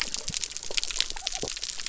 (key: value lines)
label: biophony
recorder: SoundTrap 300